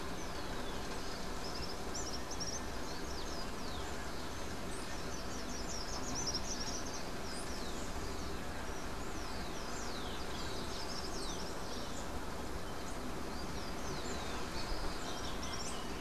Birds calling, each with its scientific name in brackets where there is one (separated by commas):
unidentified bird, Rufous-collared Sparrow (Zonotrichia capensis), Slate-throated Redstart (Myioborus miniatus), Common Tody-Flycatcher (Todirostrum cinereum)